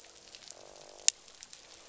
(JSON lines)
{"label": "biophony, croak", "recorder": "SoundTrap 500"}